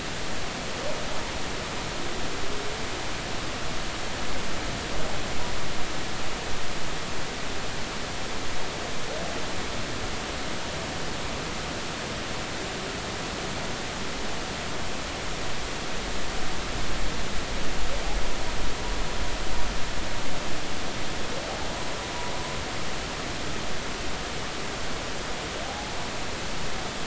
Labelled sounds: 25.6	25.9	humpback whale, 0.80 to 0.90 kHz

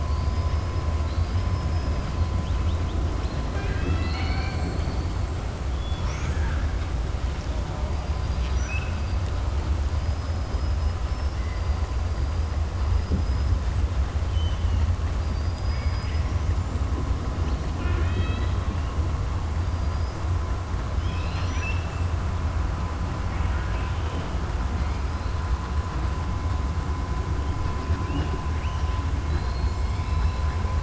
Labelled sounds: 6.1	6.7	killer whale, southern resident, 0.91 to 3.4 kHz
8.2	9.0	killer whale, southern resident, 1.5 to 5.9 kHz
15.2	16.4	killer whale, southern resident, 1.6 to 6.2 kHz
17.7	18.6	killer whale, southern resident, 0.39 to 4.5 kHz
19.7	20.2	killer whale, southern resident, 4.7 to 6.0 kHz
20.9	21.9	killer whale, southern resident, 1.7 to 5.9 kHz

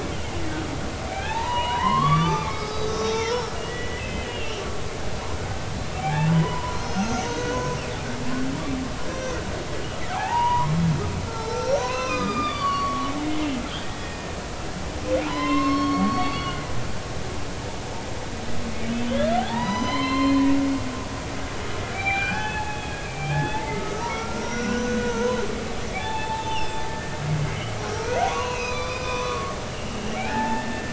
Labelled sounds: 1.1	4.6	humpback whale, 0.80 to 6.1 kHz
6.0	7.8	humpback whale, 0.80 to 6.6 kHz
9.1	10.7	humpback whale, 0.80 to 5.8 kHz
11.2	14.3	humpback whale, 0.83 to 6.3 kHz
15.2	16.6	humpback whale, 0.86 to 5.5 kHz
19.0	20.4	humpback whale, 0.80 to 6.1 kHz
21.9	25.4	humpback whale, 0.80 to 6.4 kHz
26.0	27.7	humpback whale, 0.80 to 3.9 kHz
28.0	30.9	humpback whale, 0.80 to 6.3 kHz

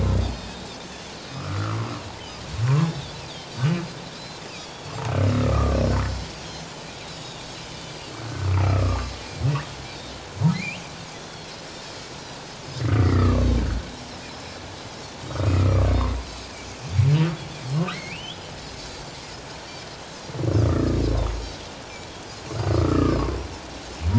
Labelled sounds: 0.2	0.6	Pacific white-sided dolphin, 4.3 to 7.8 kHz
1.4	1.8	humpback whale, 1.1 to 1.5 kHz
2.8	3.6	Pacific white-sided dolphin, 3.3 to 4.8 kHz
4.5	4.9	Pacific white-sided dolphin, 3.2 to 6.9 kHz
5.3	5.8	humpback whale, 1.1 to 1.4 kHz
7.1	7.9	Pacific white-sided dolphin, 3.4 to 7.0 kHz
8.6	9.1	humpback whale, 1.0 to 1.4 kHz
10.5	10.8	humpback whale, 1.9 to 2.9 kHz
11.1	11.5	Pacific white-sided dolphin, 3.2 to 3.5 kHz
12.6	12.9	Pacific white-sided dolphin, 4.9 to 5.3 kHz
13.0	13.9	humpback whale, 1.0 to 2.2 kHz
14.3	14.6	Pacific white-sided dolphin, 5.1 to 5.3 kHz
15.3	15.9	humpback whale, 1.1 to 2.6 kHz
17.9	18.4	humpback whale, 1.9 to 3.5 kHz
18.8	19.2	Pacific white-sided dolphin, 4.4 to 4.7 kHz
20.6	21.0	humpback whale, 1.1 to 1.4 kHz
22.7	23.2	humpback whale, 1.1 to 1.9 kHz

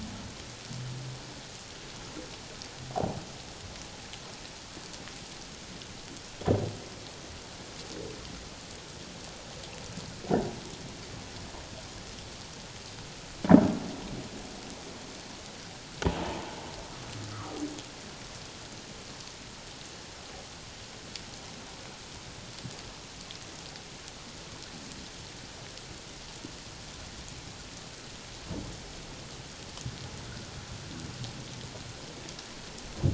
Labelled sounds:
17.3	17.6	humpback whale, 1.0 to 1.4 kHz

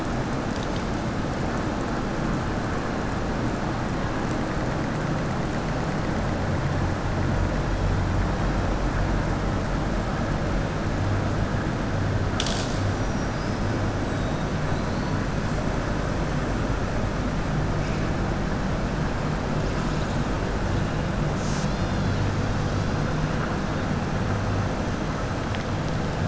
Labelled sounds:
12.9	13.6	killer whale, southern resident, 4.8 to 6.0 kHz

